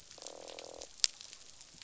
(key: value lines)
label: biophony, croak
recorder: SoundTrap 500